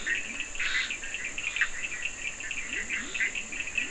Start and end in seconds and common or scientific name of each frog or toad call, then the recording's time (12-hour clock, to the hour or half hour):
0.0	1.0	Scinax perereca
0.0	3.9	Bischoff's tree frog
0.0	3.9	Leptodactylus latrans
0.0	3.9	Cochran's lime tree frog
2am